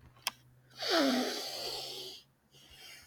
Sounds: Sniff